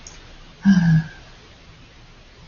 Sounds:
Sigh